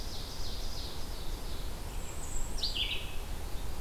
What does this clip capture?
Ovenbird, Blue-headed Vireo, Bay-breasted Warbler